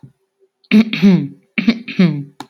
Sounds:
Throat clearing